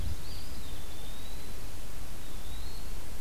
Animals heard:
Eastern Wood-Pewee (Contopus virens)

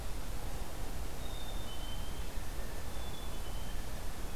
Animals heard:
Blue Jay (Cyanocitta cristata), Black-capped Chickadee (Poecile atricapillus)

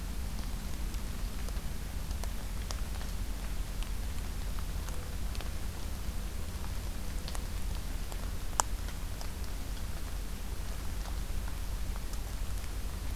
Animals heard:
Mourning Dove (Zenaida macroura)

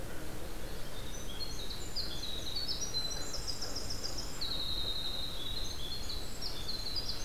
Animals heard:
Magnolia Warbler (Setophaga magnolia), Winter Wren (Troglodytes hiemalis)

